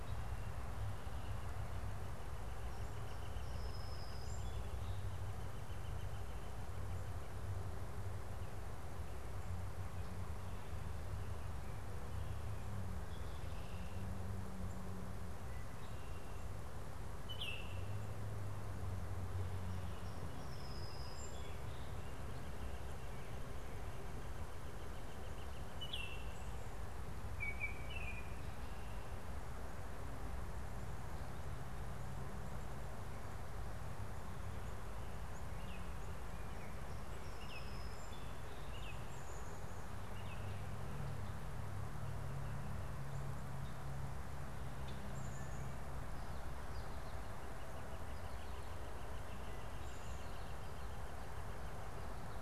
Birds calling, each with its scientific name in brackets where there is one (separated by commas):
Black-capped Chickadee (Poecile atricapillus), Baltimore Oriole (Icterus galbula), Song Sparrow (Melospiza melodia), Northern Flicker (Colaptes auratus)